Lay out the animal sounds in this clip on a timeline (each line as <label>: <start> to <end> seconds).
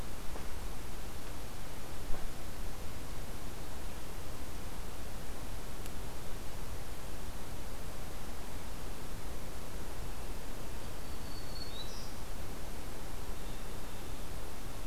Black-throated Green Warbler (Setophaga virens): 11.1 to 12.1 seconds